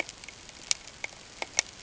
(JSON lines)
{"label": "ambient", "recorder": "HydroMoth"}